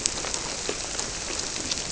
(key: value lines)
label: biophony
recorder: SoundTrap 300